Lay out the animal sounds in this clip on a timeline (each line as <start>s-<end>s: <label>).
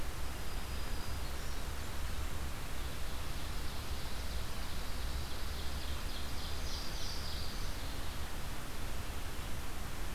0.0s-1.6s: Black-throated Green Warbler (Setophaga virens)
2.5s-7.6s: Ovenbird (Seiurus aurocapilla)
6.2s-8.0s: Louisiana Waterthrush (Parkesia motacilla)